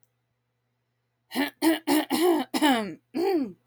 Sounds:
Throat clearing